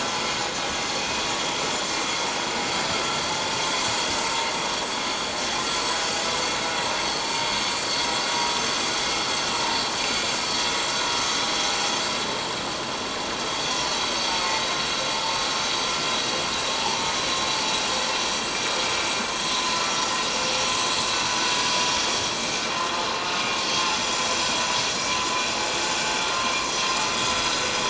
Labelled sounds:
1.0	1.2	vessel noise, 2.5 to 2.6 kHz
9.5	9.8	vessel noise, 0.88 to 1.0 kHz
14.4	14.7	vessel noise, 1.9 to 2.2 kHz
19.7	20.0	vessel noise, 1.3 to 1.4 kHz

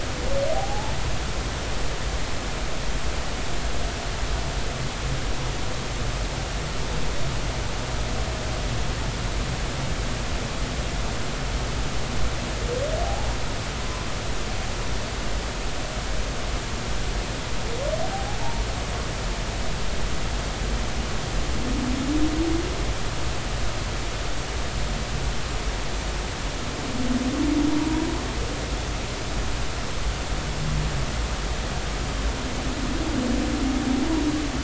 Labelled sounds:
0.5	1.0	humpback whale, 0.80 to 0.96 kHz
13.8	14.1	humpback whale, 0.96 to 1.1 kHz
18.4	18.6	humpback whale, 0.80 to 0.99 kHz

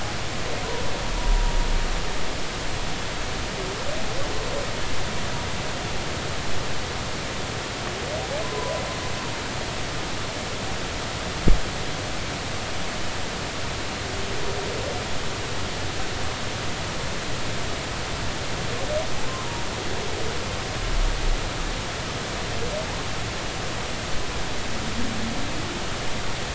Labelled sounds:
1.2	1.4	humpback whale, 0.93 to 1.0 kHz
8.4	8.8	humpback whale, 0.96 to 1.1 kHz

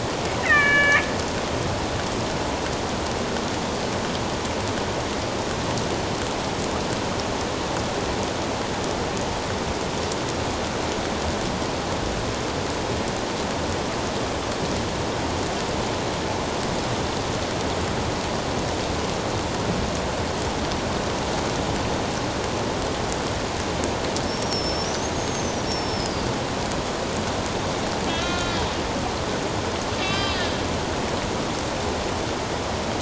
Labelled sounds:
0.4	1.1	killer whale, northern resident, A clan, AB subclan, 1.1 to 3.1 kHz
24.2	26.3	killer whale, northern resident, A clan, AB subclan, 4.6 to 6.6 kHz
28.1	28.7	killer whale, northern resident, A clan, AB subclan, 1.3 to 4.6 kHz
30.0	30.4	killer whale, northern resident, A clan, AB subclan, 1.1 to 5.2 kHz

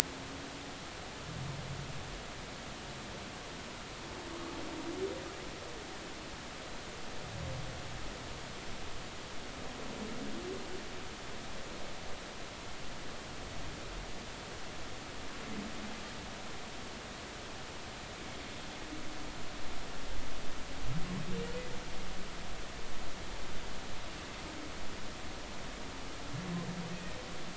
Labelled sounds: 26.9	27.2	humpback whale, 1.8 to 1.9 kHz

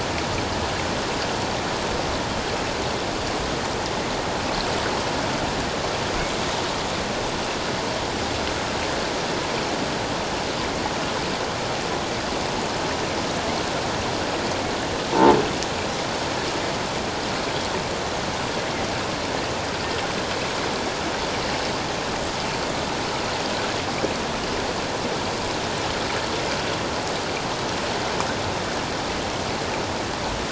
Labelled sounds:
15.1	15.4	croaking sound likely from a nearby submerged object, 0.84 to 1.0 kHz

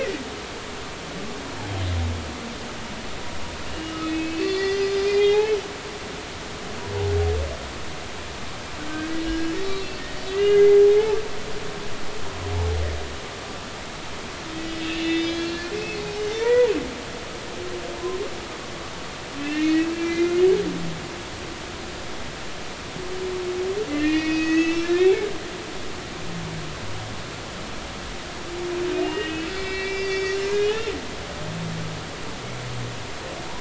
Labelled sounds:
3.7	5.8	humpback whale, 1.2 to 5.3 kHz
9.2	9.9	humpback whale, 1.6 to 4.3 kHz
10.3	10.9	humpback whale, 0.80 to 2.9 kHz
14.6	16.0	humpback whale, 1.7 to 5.2 kHz
16.4	16.7	humpback whale, 0.83 to 2.0 kHz
19.4	20.4	humpback whale, 1.7 to 2.8 kHz
23.9	25.2	humpback whale, 1.6 to 6.6 kHz
29.1	30.9	humpback whale, 1.8 to 5.5 kHz

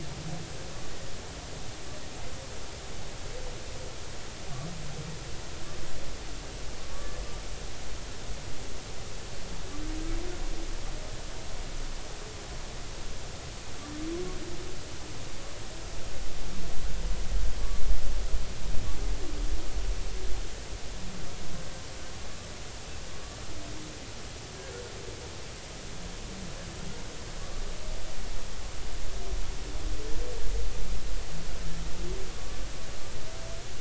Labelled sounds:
6.8	7.2	humpback whale, 0.99 to 1.2 kHz
32.3	32.6	humpback whale, 1.1 to 1.2 kHz

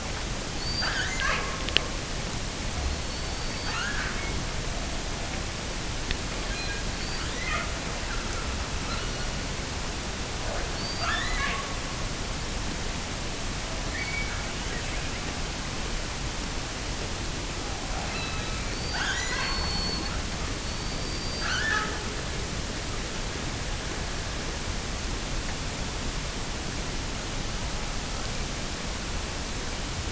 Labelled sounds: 0.5	1.7	killer whale, offshore, 0.30 to 7.1 kHz
2.8	4.5	killer whale, offshore, 0.86 to 5.0 kHz
6.5	7.9	killer whale, offshore, 0.41 to 6.6 kHz
8.8	9.6	killer whale, offshore, 1.1 to 6.2 kHz
10.7	12.2	killer whale, offshore, 0.57 to 7.3 kHz
13.8	14.7	killer whale, offshore, 1.1 to 4.9 kHz
17.9	20.2	killer whale, offshore, 0.55 to 7.1 kHz
20.6	22.0	killer whale, offshore, 1.0 to 7.0 kHz

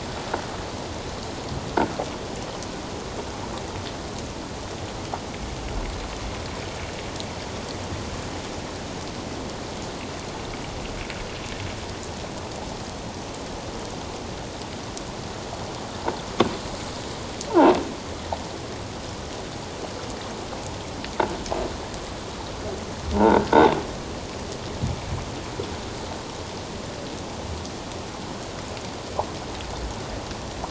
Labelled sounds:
17.5	17.7	croaking sound likely from a nearby submerged object, 0.78 to 1.1 kHz
23.2	23.8	croaking sound likely from a nearby submerged object, 0.78 to 3.8 kHz

